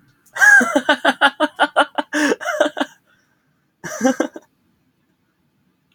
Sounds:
Laughter